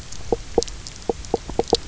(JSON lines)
{"label": "biophony, knock croak", "recorder": "SoundTrap 300"}